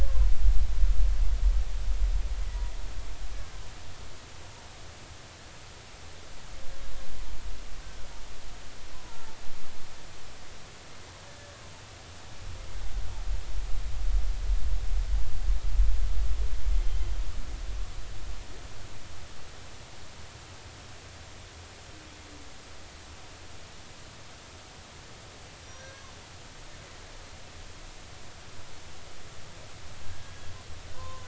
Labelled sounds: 8.9	9.4	humpback whale, 0.83 to 1.1 kHz
16.8	17.1	humpback whale, 2.9 to 3.2 kHz
25.6	26.1	humpback whale, 1.5 to 6.0 kHz
30.0	31.2	humpback whale, 0.96 to 1.7 kHz

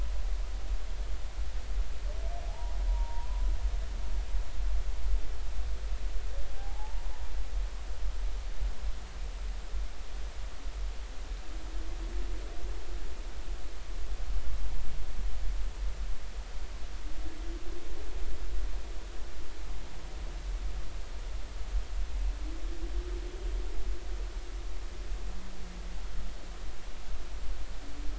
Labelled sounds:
2.5	3.5	humpback whale, 0.80 to 1.1 kHz
6.5	7.1	humpback whale, 0.80 to 1.1 kHz

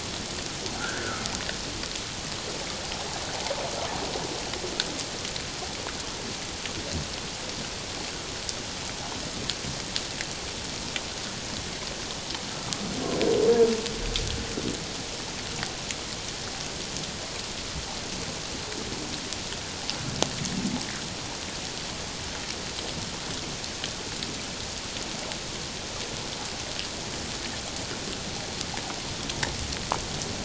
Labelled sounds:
0.7	1.3	humpback whale, 1.2 to 1.8 kHz

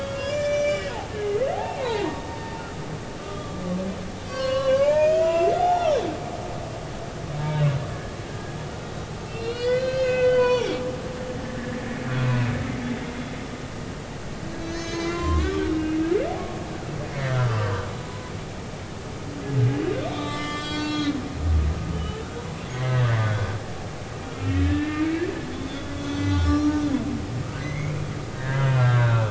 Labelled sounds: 0.0	2.2	humpback whale, 0.80 to 7.1 kHz
3.2	6.0	humpback whale, 0.80 to 7.5 kHz
7.4	8.5	humpback whale, 1.4 to 1.7 kHz
9.3	10.8	humpback whale, 0.80 to 6.0 kHz
11.3	13.1	humpback whale, 1.6 to 2.2 kHz
14.6	16.0	humpback whale, 0.96 to 6.7 kHz
16.4	17.9	humpback whale, 1.1 to 3.2 kHz
20.0	21.2	humpback whale, 1.1 to 7.6 kHz
21.9	22.4	humpback whale, 1.2 to 3.1 kHz
22.7	23.3	humpback whale, 1.7 to 2.1 kHz
24.2	25.0	humpback whale, 1.3 to 2.8 kHz
25.5	26.9	humpback whale, 1.1 to 6.1 kHz
27.6	29.2	humpback whale, 1.3 to 2.6 kHz

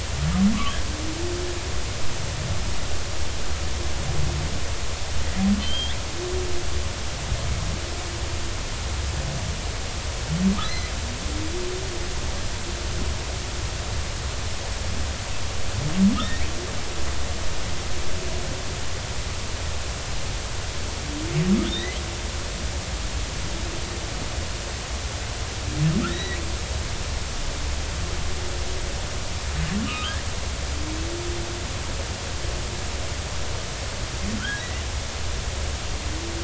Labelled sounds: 5.6	6.0	humpback whale, 3.0 to 3.7 kHz
10.6	10.9	humpback whale, 3.8 to 4.2 kHz
16.2	16.5	humpback whale, 1.7 to 3.8 kHz
21.6	21.9	humpback whale, 3.2 to 4.0 kHz
26.1	26.4	humpback whale, 1.7 to 4.0 kHz
29.9	30.2	humpback whale, 1.2 to 1.3 kHz
34.4	34.6	humpback whale, 1.3 to 1.7 kHz

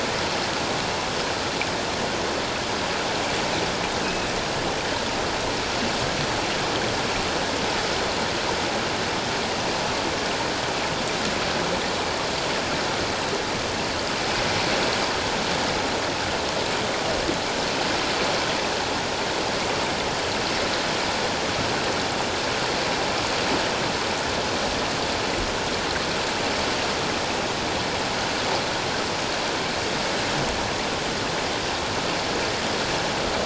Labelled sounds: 4.0	4.3	killer whale, offshore, 2.5 to 2.7 kHz

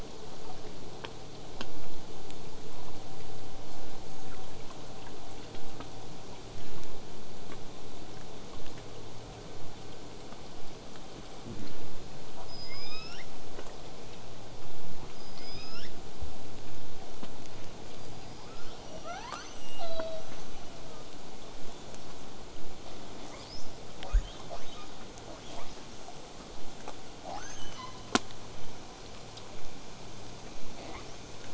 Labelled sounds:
7.3	12.3	vessel noise, 0 to 8.0 kHz
12.5	13.2	killer whale, southern resident, L pod, call S19, 0.81 to 8.0 kHz
15.1	15.9	killer whale, southern resident, L pod, call S19, 1.1 to 8.0 kHz
17.9	19.0	killer whale, southern resident, L pod, call S19, 0.40 to 8.0 kHz
19.0	20.3	killer whale, southern resident, L pod, call S02iii, 0.44 to 8.0 kHz
20.2	21.1	killer whale, southern resident, 1.1 to 8.0 kHz
23.3	23.8	killer whale, southern resident, 1.0 to 8.0 kHz
25.2	25.9	killer whale, southern resident, 0.32 to 8.0 kHz
27.2	28.2	killer whale, southern resident, L pod, call S02iii, 0.46 to 8.0 kHz
30.7	31.5	killer whale, southern resident, 0.19 to 8.0 kHz

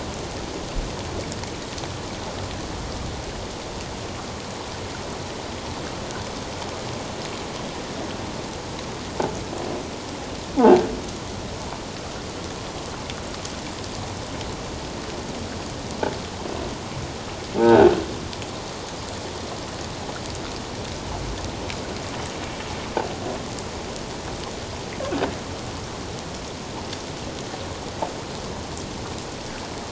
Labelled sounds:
10.6	10.9	croaking sound likely from a nearby submerged object, 0.78 to 1.7 kHz
17.6	17.9	croaking sound likely from a nearby submerged object, 1.4 to 1.7 kHz

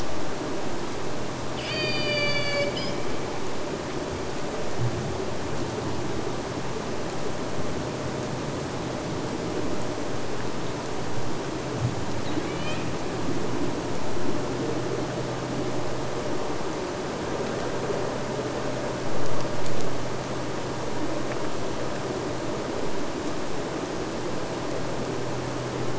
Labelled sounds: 1.6	3.3	killer whale, Bigg's (transient), AT1 transient, 0.46 to 8.0 kHz
12.3	12.9	killer whale, Bigg's (transient), AT1 transient, 0.99 to 8.0 kHz

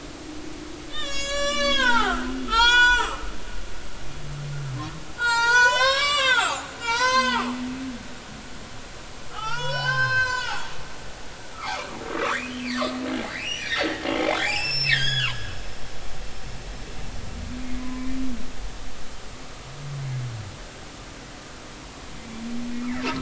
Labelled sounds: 0.9	3.3	humpback whale, 0.80 to 8.0 kHz
5.2	7.5	humpback whale, 0.80 to 8.0 kHz
9.3	10.7	humpback whale, 0.80 to 6.3 kHz
11.6	12.9	humpback whale, 1.0 to 4.8 kHz
13.3	15.4	humpback whale, 0.90 to 8.0 kHz
17.8	18.1	humpback whale, 0.96 to 1.1 kHz

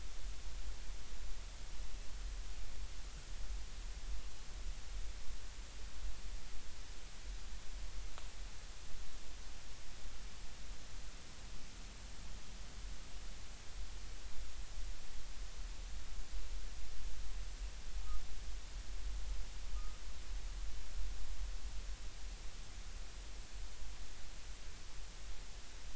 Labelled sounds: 19.7	20.0	humpback whale, 1.2 to 1.4 kHz

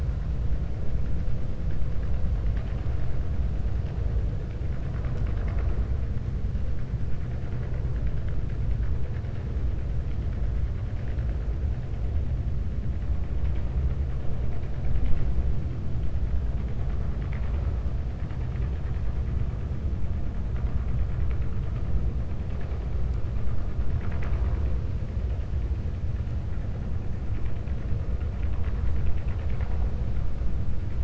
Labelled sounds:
23.9	24.6	vessel noise, 0.51 to 7.0 kHz

